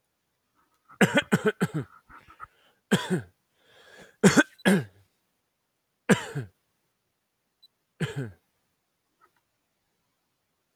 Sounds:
Cough